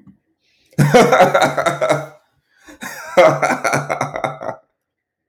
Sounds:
Laughter